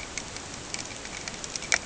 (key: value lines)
label: ambient
recorder: HydroMoth